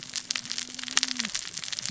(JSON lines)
{"label": "biophony, cascading saw", "recorder": "SoundTrap 600 or HydroMoth"}